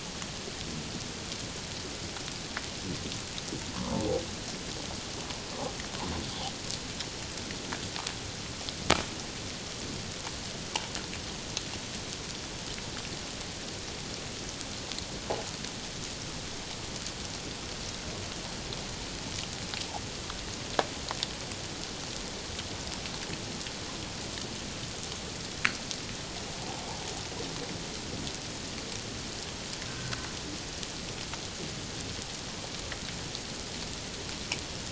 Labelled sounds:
3.8	4.1	humpback whale, 0.84 to 1.2 kHz
29.9	30.2	humpback whale, 1.4 to 1.6 kHz

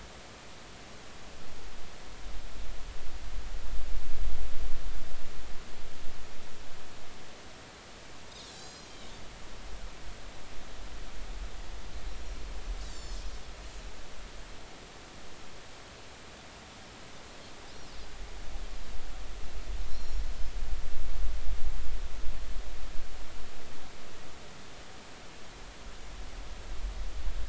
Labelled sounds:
8.4	8.9	Pacific white-sided dolphin, 3.8 to 6.7 kHz
12.1	13.2	Pacific white-sided dolphin, 4.3 to 7.6 kHz
19.9	20.3	Pacific white-sided dolphin, 4.0 to 5.7 kHz

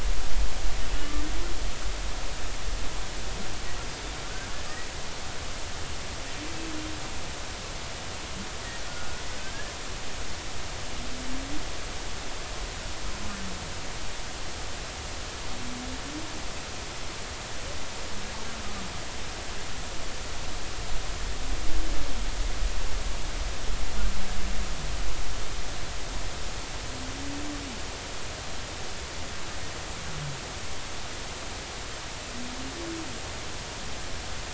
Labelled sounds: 8.9	9.7	humpback whale, 1.4 to 1.8 kHz

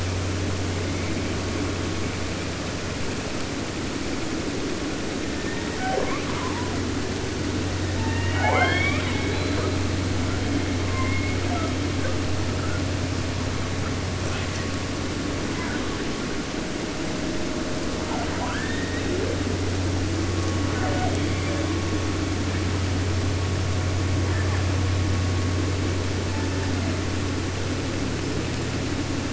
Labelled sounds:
5.2	6.8	killer whale, 0.36 to 3.5 kHz
7.8	9.9	killer whale, southern resident, J pod, call S01, 0.50 to 6.6 kHz
10.8	11.7	killer whale, 0.43 to 2.5 kHz
12.0	12.2	killer whale, 0.33 to 1.8 kHz
12.5	12.8	killer whale, 1.1 to 1.8 kHz
14.2	14.7	killer whale, 0.37 to 8.0 kHz
15.4	16.1	killer whale, 0.57 to 2.3 kHz
18.0	19.6	killer whale, 0.50 to 4.1 kHz
20.7	21.8	killer whale, 0.29 to 5.3 kHz
24.2	24.9	killer whale, 0.33 to 2.1 kHz
26.2	27.1	killer whale, southern resident, J pod, call S01, 0.37 to 2.8 kHz

